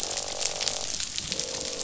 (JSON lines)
{"label": "biophony, croak", "recorder": "SoundTrap 500"}